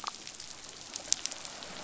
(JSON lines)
{"label": "biophony", "recorder": "SoundTrap 500"}